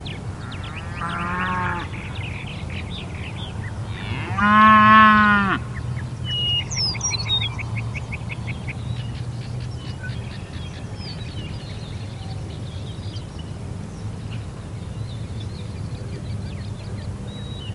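Different birds singing outside. 0.0 - 17.7
A cow moos in the distance. 0.1 - 2.4
A cow moos loudly. 4.2 - 5.7

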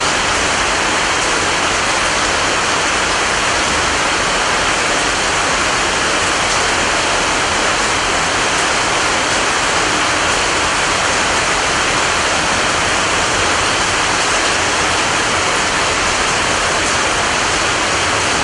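Heavy, loud rainfall. 0.0 - 18.4

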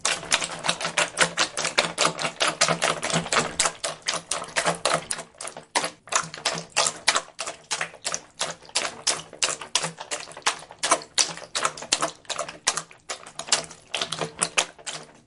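Footsteps running quickly on wet ground, then slowing down. 0.0 - 15.3

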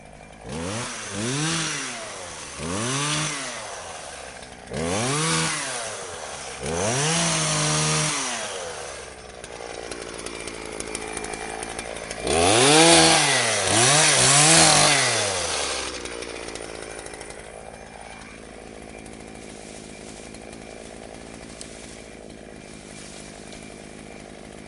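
A motorcycle repeatedly accelerates. 0.1 - 11.6
A motorcycle accelerates. 11.7 - 17.1
A motorcycle engine is running. 17.6 - 24.7

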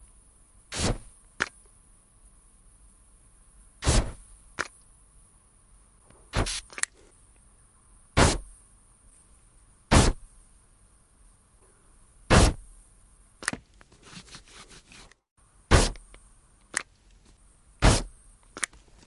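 A loud sound of gas igniting outdoors. 0.6 - 1.1
The cap is being removed, producing a clacking sound. 1.3 - 1.6
A loud sound of gas igniting outdoors. 3.7 - 4.1
The cap is being removed, producing a clacking sound. 4.5 - 4.7
A loud sound of gas igniting outdoors. 6.3 - 6.7
The cap is being removed, producing a clacking sound. 6.7 - 7.0
A loud sound of gas igniting outdoors. 8.0 - 8.5
A loud sound of gas igniting outdoors. 9.8 - 10.2
A loud sound of gas igniting outdoors. 12.3 - 12.6
The cap is being removed, producing a clacking sound. 13.3 - 13.6
A loud sound of gas igniting outdoors. 15.6 - 16.0
The cap is being removed, producing a clacking sound. 16.7 - 16.9
A loud sound of gas igniting outdoors. 17.7 - 18.1
The cap is being removed, producing a clacking sound. 18.6 - 18.8

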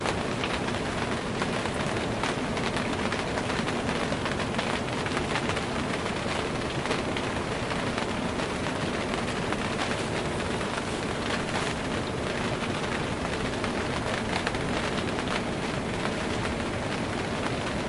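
Raindrops softly hit a tent, creating a gentle, rhythmic tapping sound. 0.0 - 17.9

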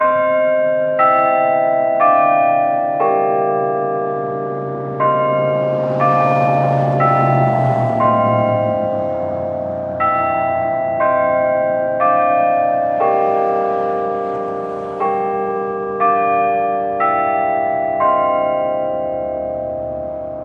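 Repeated bell sounds. 0.1 - 4.6
A vehicle is driving by. 5.1 - 9.9
Repeated bell sounds. 9.9 - 18.9

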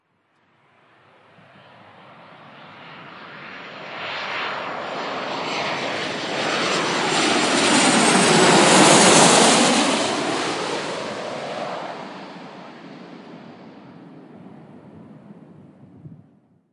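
An aircraft flies overhead with engine sounds approaching, passing, and fading away. 0.1 - 16.7

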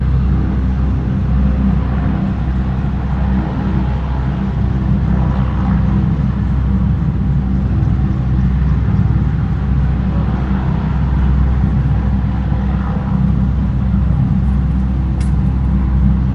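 A helicopter makes a thudding noise outdoors. 0.0 - 16.3

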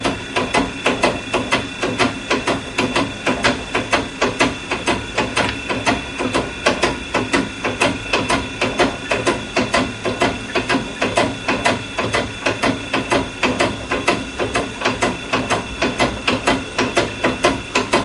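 A machine is stamping repeatedly indoors. 0.0 - 18.0

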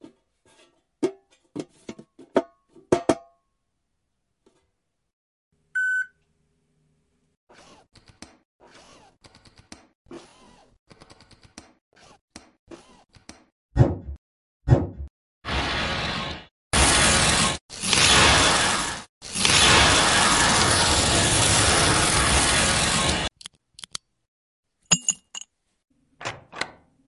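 A distinct tapping sound on a hollow metallic surface producing a resonant and echoing tone. 1.0 - 3.3
A short, mid-volume mechanical beep with a clear, sharp tone. 5.7 - 6.2
A faint, periodic clicking of keyboard keys being pressed. 7.6 - 13.7
Distinct, periodic metallic snapping or popping sounds resembling the noise of straightening a dent in a metal sheet. 13.7 - 15.2
A harsh tearing sound repeats with increasing loudness, resembling aggressive ripping. 15.4 - 23.4
Short, periodic clicking sounds of keyboard key presses. 23.4 - 24.2
A short, sharp clinking sound of an object hitting a glass surface. 24.8 - 25.6
A short, distinct click of a door lock engaging. 26.1 - 26.9

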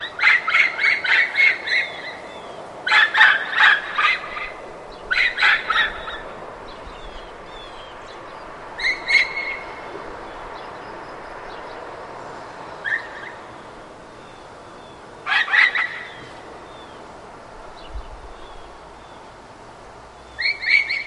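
Echoing, repeating bird chirps. 0.1 - 2.1
Birds chirping faintly in the distance. 2.1 - 2.8
A dog barks repeatedly with a high-pitched tone. 2.8 - 4.7
A puppy barks and yelps in the distance with an echoing effect. 4.7 - 6.0
Distant, faint bird sounds. 6.2 - 8.7
A shrill dog sound echoes and repeats. 8.7 - 9.5
Distant birds chirping constantly. 9.6 - 12.7
A shrill dog sound echoes and repeats. 12.8 - 13.3
Distant birds chirping constantly. 13.3 - 15.0
A dog is barking with a high-pitched tone. 15.0 - 16.0
Distant birds chirping constantly. 16.1 - 20.2
A dog yelps repeatedly with a high pitch. 20.2 - 20.9

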